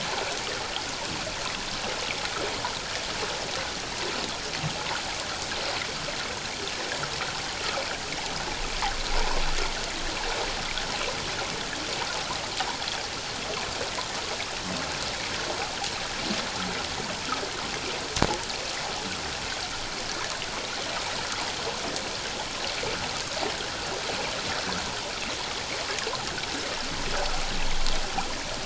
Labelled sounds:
9.1	9.4	water noise, 0.78 to 1.1 kHz

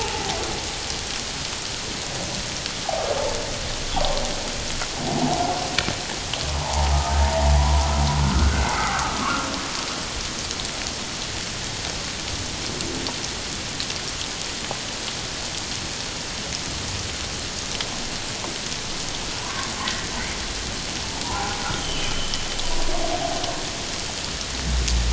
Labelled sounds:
6.6	6.9	humpback whale, 0.78 to 1.1 kHz
7.6	9.5	humpback whale, 0.91 to 2.2 kHz
19.4	20.1	humpback whale, 0.94 to 2.0 kHz
21.2	22.1	humpback whale, 0.78 to 3.4 kHz

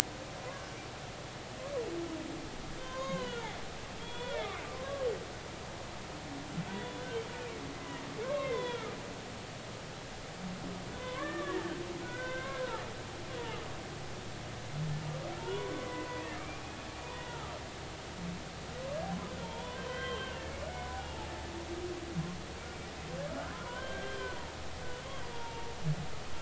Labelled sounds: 2.8	3.4	humpback whale, 0.93 to 3.8 kHz
4.0	5.4	humpback whale, 0.90 to 3.5 kHz
6.7	7.0	humpback whale, 0.90 to 3.5 kHz
7.7	8.9	humpback whale, 0.93 to 3.8 kHz
10.9	12.7	humpback whale, 0.96 to 3.8 kHz
15.4	16.4	humpback whale, 0.86 to 2.1 kHz
17.1	17.5	humpback whale, 1.2 to 2.0 kHz
19.4	21.3	humpback whale, 0.80 to 3.6 kHz
23.7	24.5	humpback whale, 0.86 to 3.2 kHz
25.3	25.7	humpback whale, 0.86 to 0.99 kHz

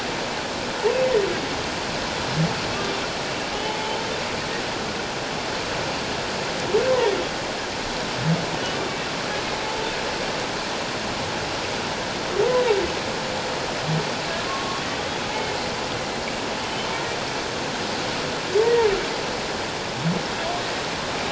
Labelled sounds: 3.6	4.0	humpback whale, 0.81 to 0.97 kHz
14.5	14.8	humpback whale, 1.0 to 1.2 kHz
16.6	16.9	humpback whale, 3.0 to 3.1 kHz

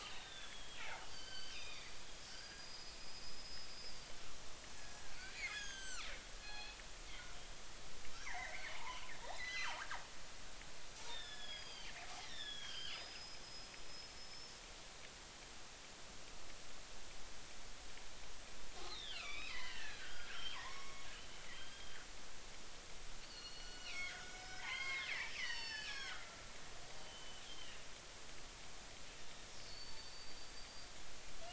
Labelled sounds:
0.0	4.1	killer whale, northern resident, G clan, 0.80 to 5.2 kHz
4.8	6.8	killer whale, northern resident, G clan, 1.2 to 8.0 kHz
8.1	9.7	killer whale, northern resident, G clan, 0.83 to 8.0 kHz
11.1	14.6	killer whale, northern resident, G clan, 1.3 to 6.9 kHz
18.9	22.0	killer whale, northern resident, G clan, 0.90 to 4.3 kHz
23.2	26.6	killer whale, northern resident, G clan, 0.80 to 6.7 kHz
27.0	27.8	killer whale, northern resident, G clan, 2.6 to 3.4 kHz
29.2	30.9	killer whale, northern resident, G clan, 3.6 to 4.8 kHz

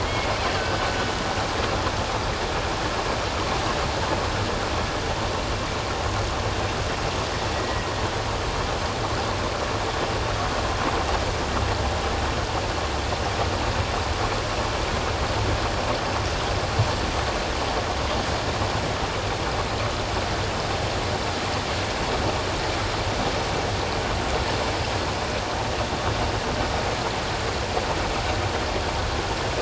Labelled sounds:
0.0	0.9	killer whale, Bigg's (transient), 1.5 to 2.2 kHz
7.5	7.9	killer whale, Bigg's (transient), 1.9 to 2.0 kHz

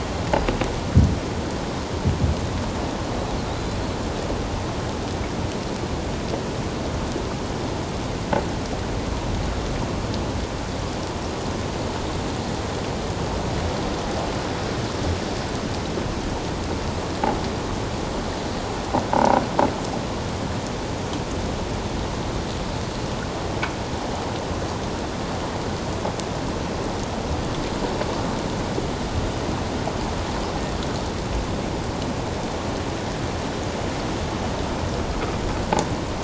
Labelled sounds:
19.1	19.4	croaking sound likely from a nearby submerged object, 0.78 to 1.0 kHz

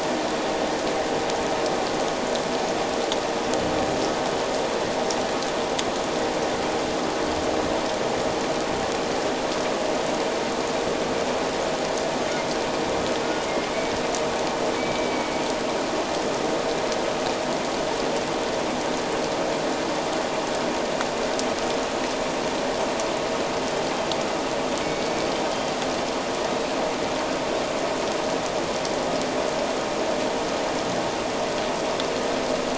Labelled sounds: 14.8	15.4	humpback whale, 2.2 to 2.4 kHz
24.8	25.2	humpback whale, 2.2 to 2.3 kHz

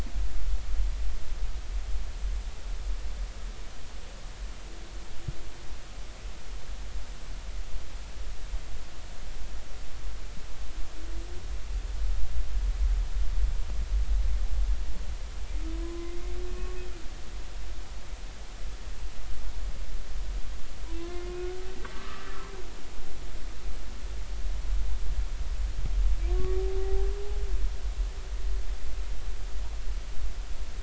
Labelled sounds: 15.7	16.7	humpback whale, 0.96 to 2.6 kHz
21.0	22.3	humpback whale, 0.99 to 1.7 kHz
26.3	26.6	humpback whale, 1.1 to 1.2 kHz

